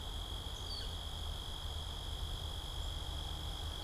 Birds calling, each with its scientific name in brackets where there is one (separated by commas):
Northern Flicker (Colaptes auratus)